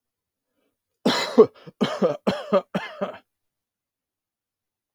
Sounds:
Cough